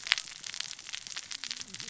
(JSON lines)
{"label": "biophony, cascading saw", "recorder": "SoundTrap 600 or HydroMoth"}